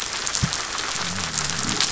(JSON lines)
{"label": "biophony", "recorder": "SoundTrap 500"}
{"label": "anthrophony, boat engine", "recorder": "SoundTrap 500"}